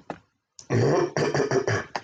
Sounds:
Throat clearing